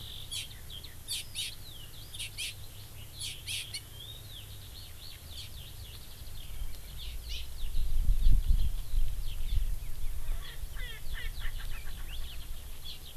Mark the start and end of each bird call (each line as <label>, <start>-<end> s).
Eurasian Skylark (Alauda arvensis), 0.0-9.6 s
Hawaii Amakihi (Chlorodrepanis virens), 0.2-0.5 s
Hawaii Amakihi (Chlorodrepanis virens), 1.0-1.5 s
Hawaii Amakihi (Chlorodrepanis virens), 2.1-2.5 s
Hawaii Amakihi (Chlorodrepanis virens), 3.1-3.8 s
Hawaii Amakihi (Chlorodrepanis virens), 5.3-5.4 s
Hawaii Amakihi (Chlorodrepanis virens), 6.9-7.4 s
Erckel's Francolin (Pternistis erckelii), 10.1-12.4 s
Hawaii Amakihi (Chlorodrepanis virens), 12.8-13.0 s